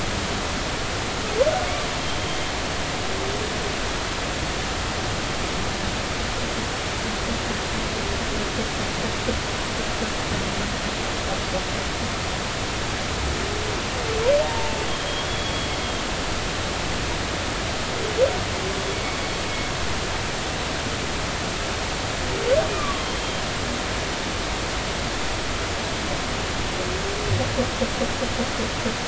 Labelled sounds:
14.4	15.7	humpback whale, 0.86 to 3.5 kHz
22.7	23.1	humpback whale, 1.0 to 1.3 kHz

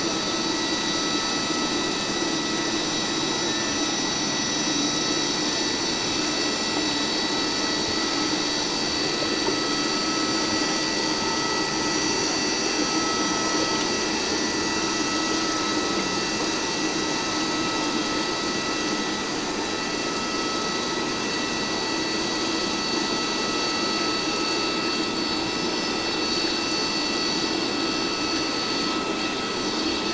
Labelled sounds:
12.9	13.2	vessel noise, 1.2 to 1.3 kHz
25.5	25.8	vessel noise, 5.2 to 5.3 kHz

